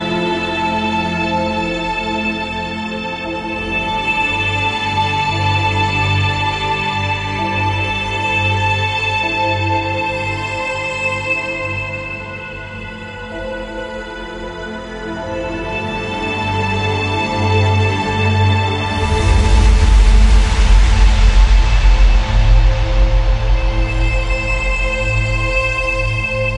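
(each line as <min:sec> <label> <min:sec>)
0:00.1 A cello plays a tragic, breathtaking melody that evokes a vividly mournful atmosphere. 0:26.5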